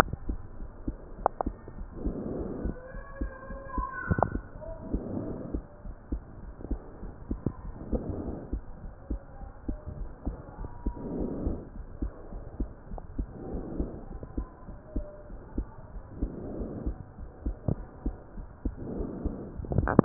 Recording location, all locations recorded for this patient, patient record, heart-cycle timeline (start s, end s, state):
pulmonary valve (PV)
aortic valve (AV)+pulmonary valve (PV)+tricuspid valve (TV)+mitral valve (MV)
#Age: Child
#Sex: Female
#Height: nan
#Weight: nan
#Pregnancy status: False
#Murmur: Absent
#Murmur locations: nan
#Most audible location: nan
#Systolic murmur timing: nan
#Systolic murmur shape: nan
#Systolic murmur grading: nan
#Systolic murmur pitch: nan
#Systolic murmur quality: nan
#Diastolic murmur timing: nan
#Diastolic murmur shape: nan
#Diastolic murmur grading: nan
#Diastolic murmur pitch: nan
#Diastolic murmur quality: nan
#Outcome: Normal
#Campaign: 2015 screening campaign
0.00	4.46	unannotated
4.46	4.62	diastole
4.62	4.76	S1
4.76	4.92	systole
4.92	5.06	S2
5.06	5.24	diastole
5.24	5.36	S1
5.36	5.52	systole
5.52	5.64	S2
5.64	5.84	diastole
5.84	5.94	S1
5.94	6.10	systole
6.10	6.24	S2
6.24	6.44	diastole
6.44	6.54	S1
6.54	6.70	systole
6.70	6.82	S2
6.82	7.00	diastole
7.00	7.12	S1
7.12	7.26	systole
7.26	7.40	S2
7.40	7.62	diastole
7.62	7.76	S1
7.76	7.92	systole
7.92	8.06	S2
8.06	8.24	diastole
8.24	8.36	S1
8.36	8.52	systole
8.52	8.64	S2
8.64	8.84	diastole
8.84	8.92	S1
8.92	9.06	systole
9.06	9.20	S2
9.20	9.40	diastole
9.40	9.48	S1
9.48	9.66	systole
9.66	9.80	S2
9.80	9.98	diastole
9.98	10.10	S1
10.10	10.26	systole
10.26	10.38	S2
10.38	10.59	diastole
10.59	10.72	S1
10.72	10.84	systole
10.84	10.94	S2
10.94	11.10	diastole
11.10	11.28	S1
11.28	11.44	systole
11.44	11.60	S2
11.60	11.78	diastole
11.78	11.88	S1
11.88	12.00	systole
12.00	12.12	S2
12.12	12.34	diastole
12.34	12.44	S1
12.44	12.56	systole
12.56	12.68	S2
12.68	12.90	diastole
12.90	13.02	S1
13.02	13.16	systole
13.16	13.30	S2
13.30	13.52	diastole
13.52	13.66	S1
13.66	13.78	systole
13.78	13.90	S2
13.90	14.10	diastole
14.10	14.22	S1
14.22	14.36	systole
14.36	14.48	S2
14.48	14.68	diastole
14.68	14.76	S1
14.76	14.94	systole
14.94	15.08	S2
15.08	15.30	diastole
15.30	15.40	S1
15.40	15.54	systole
15.54	15.66	S2
15.66	15.94	diastole
15.94	16.04	S1
16.04	16.18	systole
16.18	16.34	S2
16.34	16.56	diastole
16.56	16.70	S1
16.70	16.82	systole
16.82	16.98	S2
16.98	17.20	diastole
17.20	17.30	S1
17.30	17.44	systole
17.44	17.58	S2
17.58	17.77	diastole
17.77	17.88	S1
17.88	18.04	systole
18.04	18.18	S2
18.18	18.36	diastole
18.36	18.48	S1
18.48	18.64	systole
18.64	18.74	S2
18.74	18.92	diastole
18.92	20.05	unannotated